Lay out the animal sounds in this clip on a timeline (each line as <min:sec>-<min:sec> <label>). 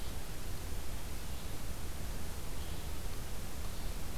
0:00.0-0:04.2 Red-eyed Vireo (Vireo olivaceus)